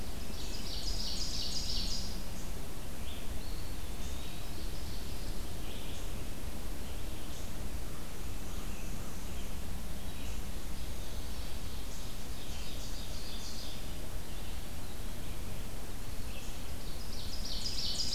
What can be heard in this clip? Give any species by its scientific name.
Corvus brachyrhynchos, Seiurus aurocapilla, Vireo olivaceus, Contopus virens